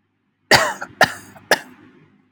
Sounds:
Cough